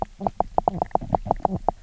{"label": "biophony, knock croak", "recorder": "SoundTrap 300"}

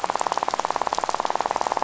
{"label": "biophony, rattle", "recorder": "SoundTrap 500"}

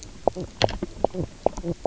{"label": "biophony, knock croak", "recorder": "SoundTrap 300"}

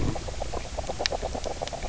{"label": "biophony, knock croak", "recorder": "SoundTrap 300"}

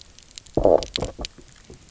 {"label": "biophony, low growl", "recorder": "SoundTrap 300"}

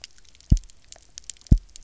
{"label": "biophony, double pulse", "recorder": "SoundTrap 300"}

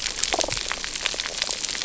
{"label": "biophony", "recorder": "SoundTrap 300"}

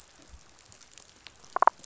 {"label": "biophony, damselfish", "recorder": "SoundTrap 500"}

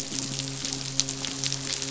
{"label": "biophony", "recorder": "SoundTrap 500"}
{"label": "biophony, midshipman", "recorder": "SoundTrap 500"}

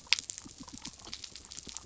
{"label": "biophony", "recorder": "SoundTrap 300"}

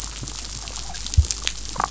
{"label": "biophony, damselfish", "recorder": "SoundTrap 500"}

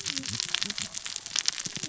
{"label": "biophony, cascading saw", "recorder": "SoundTrap 600 or HydroMoth"}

